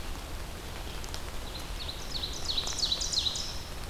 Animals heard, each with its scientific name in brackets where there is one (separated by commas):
Ovenbird (Seiurus aurocapilla)